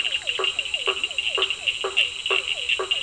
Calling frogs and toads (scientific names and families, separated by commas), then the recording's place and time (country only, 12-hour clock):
Boana faber (Hylidae), Physalaemus cuvieri (Leptodactylidae), Sphaenorhynchus surdus (Hylidae)
Brazil, 8:30pm